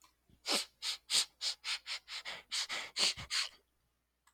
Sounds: Sniff